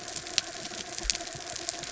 {"label": "anthrophony, mechanical", "recorder": "SoundTrap 300"}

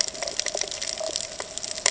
{"label": "ambient", "recorder": "HydroMoth"}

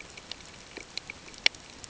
{"label": "ambient", "recorder": "HydroMoth"}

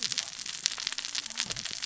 {"label": "biophony, cascading saw", "recorder": "SoundTrap 600 or HydroMoth"}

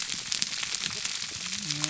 {"label": "biophony, whup", "recorder": "SoundTrap 300"}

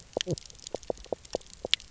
{"label": "biophony, knock croak", "recorder": "SoundTrap 300"}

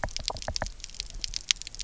{"label": "biophony, knock", "recorder": "SoundTrap 300"}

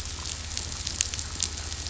{"label": "anthrophony, boat engine", "recorder": "SoundTrap 500"}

